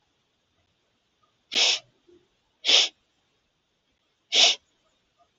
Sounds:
Sniff